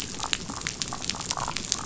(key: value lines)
label: biophony, damselfish
recorder: SoundTrap 500